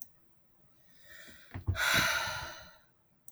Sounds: Sigh